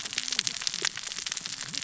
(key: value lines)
label: biophony, cascading saw
recorder: SoundTrap 600 or HydroMoth